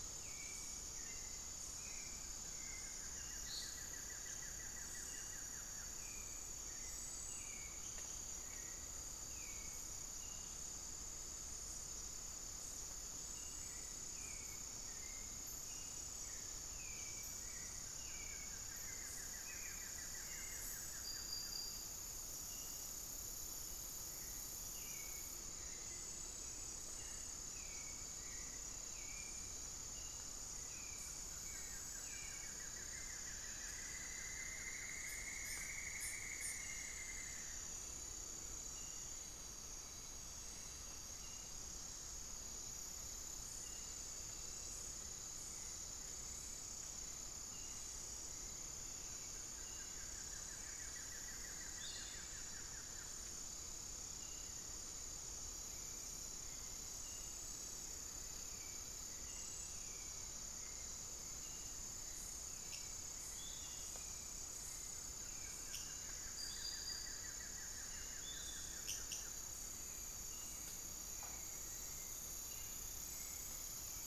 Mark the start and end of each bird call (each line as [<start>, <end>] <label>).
[0.00, 74.06] Hauxwell's Thrush (Turdus hauxwelli)
[0.00, 74.06] unidentified bird
[1.68, 6.38] Buff-throated Woodcreeper (Xiphorhynchus guttatus)
[17.08, 21.68] Buff-throated Woodcreeper (Xiphorhynchus guttatus)
[30.78, 35.38] Buff-throated Woodcreeper (Xiphorhynchus guttatus)
[33.48, 38.08] Cinnamon-throated Woodcreeper (Dendrexetastes rufigula)
[49.18, 53.78] Buff-throated Woodcreeper (Xiphorhynchus guttatus)
[51.58, 52.28] Piratic Flycatcher (Legatus leucophaius)
[63.18, 68.78] Piratic Flycatcher (Legatus leucophaius)
[64.88, 69.58] Buff-throated Woodcreeper (Xiphorhynchus guttatus)